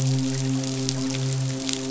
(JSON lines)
{"label": "biophony, midshipman", "recorder": "SoundTrap 500"}